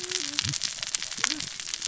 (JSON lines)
{"label": "biophony, cascading saw", "recorder": "SoundTrap 600 or HydroMoth"}